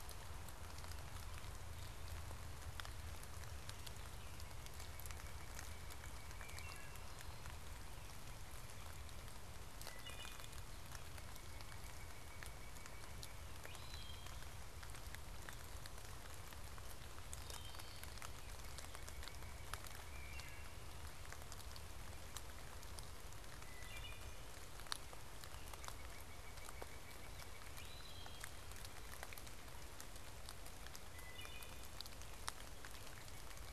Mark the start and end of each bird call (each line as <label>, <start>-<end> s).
Northern Cardinal (Cardinalis cardinalis), 4.1-6.9 s
Wood Thrush (Hylocichla mustelina), 6.2-7.2 s
Wood Thrush (Hylocichla mustelina), 9.7-10.7 s
Northern Cardinal (Cardinalis cardinalis), 11.2-13.8 s
Wood Thrush (Hylocichla mustelina), 13.4-14.6 s
Wood Thrush (Hylocichla mustelina), 17.3-18.4 s
Northern Cardinal (Cardinalis cardinalis), 18.2-20.6 s
Wood Thrush (Hylocichla mustelina), 20.0-20.9 s
Wood Thrush (Hylocichla mustelina), 23.6-24.5 s
Northern Cardinal (Cardinalis cardinalis), 25.4-28.1 s
Wood Thrush (Hylocichla mustelina), 27.7-28.6 s
Wood Thrush (Hylocichla mustelina), 31.0-32.0 s